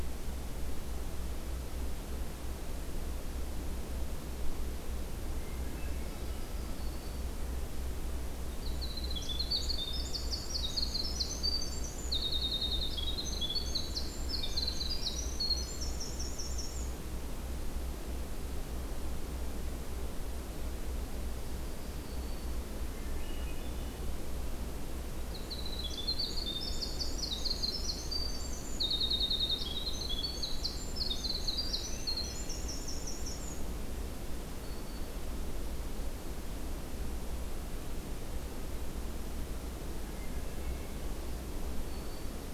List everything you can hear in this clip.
Hermit Thrush, Black-throated Green Warbler, Winter Wren